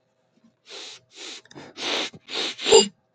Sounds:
Sniff